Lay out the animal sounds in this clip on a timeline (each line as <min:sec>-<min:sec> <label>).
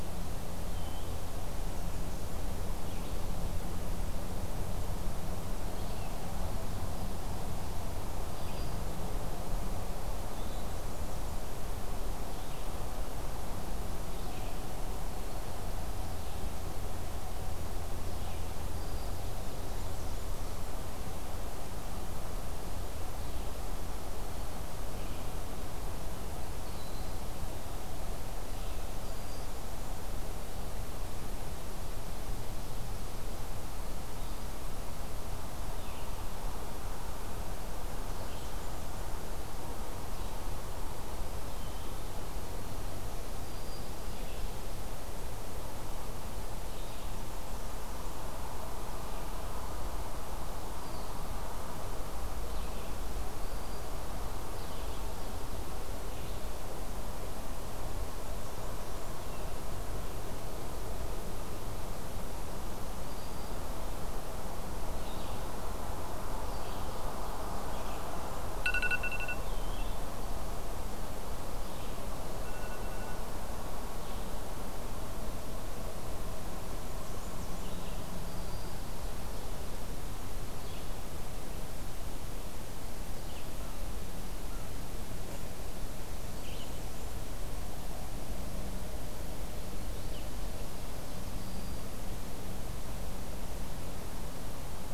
0:00.0-0:23.7 Red-eyed Vireo (Vireo olivaceus)
0:00.7-0:01.2 Eastern Wood-Pewee (Contopus virens)
0:08.2-0:08.9 Black-throated Green Warbler (Setophaga virens)
0:18.7-0:19.2 Black-throated Green Warbler (Setophaga virens)
0:24.8-0:29.1 Red-eyed Vireo (Vireo olivaceus)
0:26.6-0:27.3 Broad-winged Hawk (Buteo platypterus)
0:28.6-0:29.8 Blackburnian Warbler (Setophaga fusca)
0:35.7-0:38.9 Red-eyed Vireo (Vireo olivaceus)
0:41.4-0:42.2 Eastern Wood-Pewee (Contopus virens)
0:43.4-0:44.1 Black-throated Green Warbler (Setophaga virens)
0:46.7-0:48.2 Blackburnian Warbler (Setophaga fusca)
0:50.7-0:59.6 Red-eyed Vireo (Vireo olivaceus)
0:53.3-0:54.0 Black-throated Green Warbler (Setophaga virens)
1:03.0-1:03.5 Black-throated Green Warbler (Setophaga virens)
1:04.9-1:14.6 Red-eyed Vireo (Vireo olivaceus)
1:06.4-1:08.0 Ovenbird (Seiurus aurocapilla)
1:16.4-1:17.8 Blackburnian Warbler (Setophaga fusca)
1:18.1-1:19.0 Black-throated Green Warbler (Setophaga virens)
1:20.4-1:34.5 Red-eyed Vireo (Vireo olivaceus)
1:23.7-1:25.4 American Crow (Corvus brachyrhynchos)
1:25.9-1:27.4 Blackburnian Warbler (Setophaga fusca)
1:31.3-1:31.9 Broad-winged Hawk (Buteo platypterus)